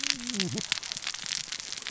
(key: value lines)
label: biophony, cascading saw
recorder: SoundTrap 600 or HydroMoth